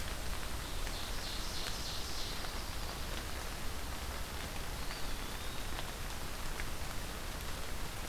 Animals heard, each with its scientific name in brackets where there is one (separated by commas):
Ovenbird (Seiurus aurocapilla), Eastern Wood-Pewee (Contopus virens)